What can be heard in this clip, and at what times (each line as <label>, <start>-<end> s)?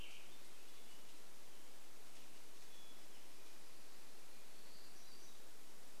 Western Tanager song, 0-2 s
Hermit Thrush song, 0-4 s
Black-throated Gray Warbler song, 4-6 s